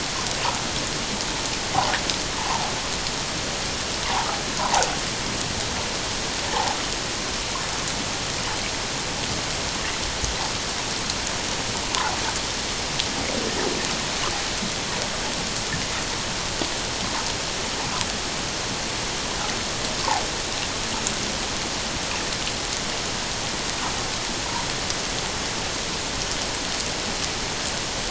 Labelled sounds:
4.6	4.8	water noise, 0.78 to 1.1 kHz

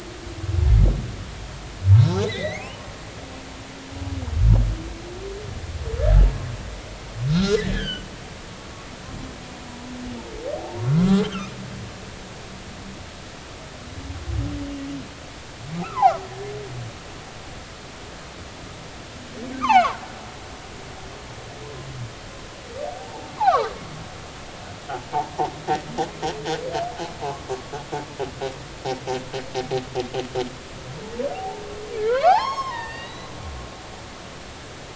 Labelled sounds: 1.9	2.9	humpback whale, 0.83 to 4.3 kHz
7.3	8.0	humpback whale, 1.3 to 4.0 kHz
10.6	11.5	humpback whale, 0.80 to 3.3 kHz
15.8	16.5	humpback whale, 0.80 to 1.9 kHz
19.6	20.0	humpback whale, 0.80 to 3.2 kHz
23.0	23.8	humpback whale, 0.80 to 4.2 kHz
27.2	27.7	humpback whale, 0.80 to 1.2 kHz
31.3	31.6	humpback whale, 0.80 to 0.93 kHz
32.1	33.3	humpback whale, 0.80 to 6.6 kHz

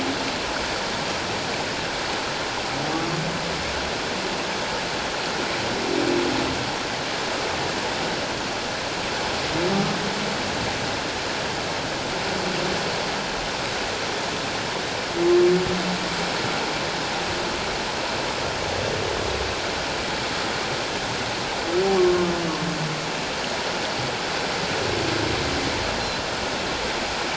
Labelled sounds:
22.0	22.3	humpback whale, 1.0 to 1.2 kHz

